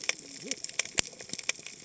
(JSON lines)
{"label": "biophony, cascading saw", "recorder": "HydroMoth"}